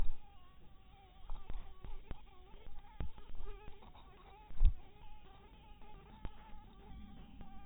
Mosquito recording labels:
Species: mosquito; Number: one; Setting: cup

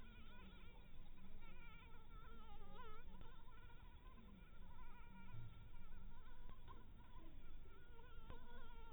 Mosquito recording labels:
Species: Anopheles maculatus; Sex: female; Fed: blood-fed; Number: one; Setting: cup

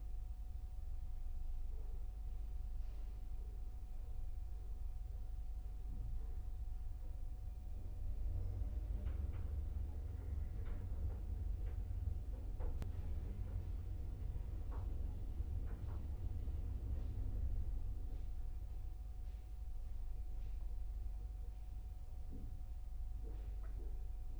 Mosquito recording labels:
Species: Culex quinquefasciatus; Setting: cup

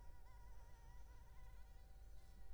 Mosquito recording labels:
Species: Anopheles arabiensis; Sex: female; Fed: unfed; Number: one; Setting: cup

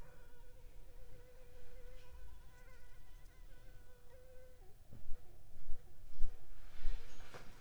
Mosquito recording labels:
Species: Anopheles arabiensis; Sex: female; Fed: unfed; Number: one; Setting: cup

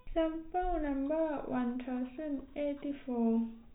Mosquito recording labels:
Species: no mosquito; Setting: cup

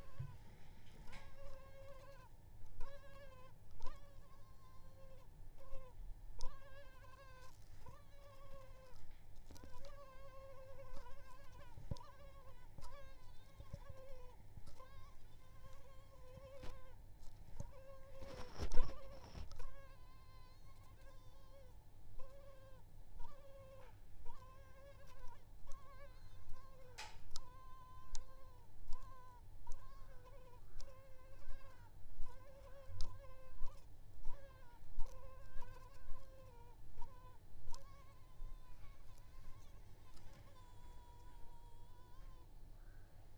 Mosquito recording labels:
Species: Culex pipiens complex; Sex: female; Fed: unfed; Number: one; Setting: cup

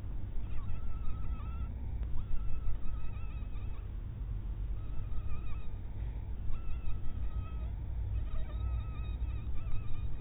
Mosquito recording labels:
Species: mosquito; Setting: cup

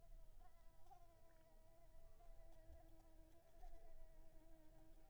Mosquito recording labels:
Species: Anopheles arabiensis; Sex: female; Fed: unfed; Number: one; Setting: cup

